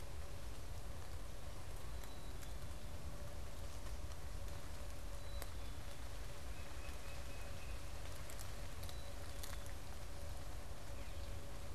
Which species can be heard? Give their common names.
Black-capped Chickadee, Tufted Titmouse